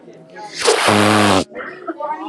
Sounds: Sniff